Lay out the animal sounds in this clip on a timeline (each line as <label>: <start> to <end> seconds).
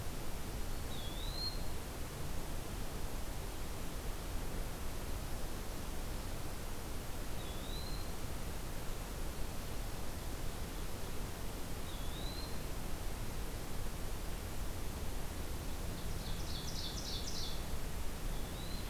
Eastern Wood-Pewee (Contopus virens): 0.8 to 1.7 seconds
Eastern Wood-Pewee (Contopus virens): 7.3 to 8.1 seconds
Eastern Wood-Pewee (Contopus virens): 11.7 to 12.7 seconds
Ovenbird (Seiurus aurocapilla): 15.8 to 17.7 seconds
Eastern Wood-Pewee (Contopus virens): 18.2 to 18.9 seconds